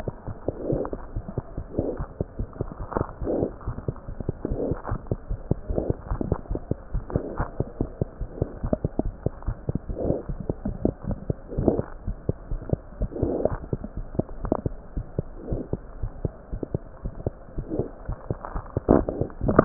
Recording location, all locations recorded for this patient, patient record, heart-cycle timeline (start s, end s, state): pulmonary valve (PV)
aortic valve (AV)+pulmonary valve (PV)
#Age: Infant
#Sex: Female
#Height: 62.0 cm
#Weight: 6.2 kg
#Pregnancy status: False
#Murmur: Present
#Murmur locations: pulmonary valve (PV)
#Most audible location: pulmonary valve (PV)
#Systolic murmur timing: Early-systolic
#Systolic murmur shape: Plateau
#Systolic murmur grading: I/VI
#Systolic murmur pitch: Low
#Systolic murmur quality: Blowing
#Diastolic murmur timing: nan
#Diastolic murmur shape: nan
#Diastolic murmur grading: nan
#Diastolic murmur pitch: nan
#Diastolic murmur quality: nan
#Outcome: Normal
#Campaign: 2015 screening campaign
0.00	15.26	unannotated
15.26	15.50	diastole
15.50	15.61	S1
15.61	15.71	systole
15.71	15.82	S2
15.82	16.00	diastole
16.00	16.10	S1
16.10	16.23	systole
16.23	16.32	S2
16.32	16.49	diastole
16.49	16.60	S1
16.60	16.72	systole
16.72	16.83	S2
16.83	17.03	diastole
17.03	17.14	S1
17.14	17.24	systole
17.24	17.32	S2
17.32	17.57	diastole
17.57	17.65	S1
17.65	17.78	systole
17.78	17.86	S2
17.86	18.08	diastole
18.08	18.18	S1
18.18	18.27	systole
18.27	18.36	S2
18.36	18.54	diastole
18.54	18.64	S1
18.64	18.75	systole
18.75	18.82	S2
18.82	18.98	diastole
18.98	19.65	unannotated